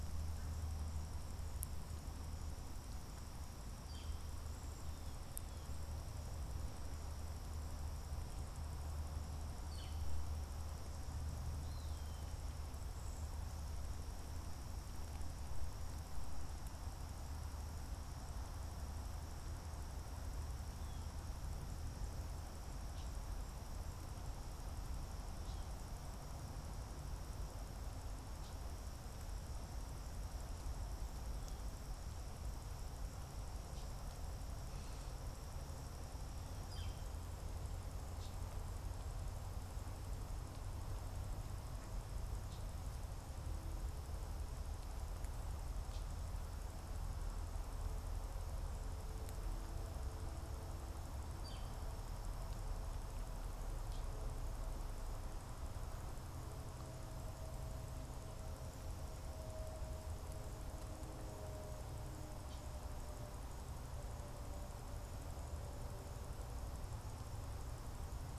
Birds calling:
unidentified bird, Eastern Wood-Pewee (Contopus virens), Northern Flicker (Colaptes auratus)

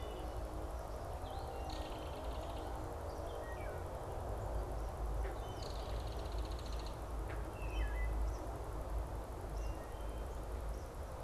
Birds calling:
Eastern Kingbird (Tyrannus tyrannus), Belted Kingfisher (Megaceryle alcyon), Wood Thrush (Hylocichla mustelina)

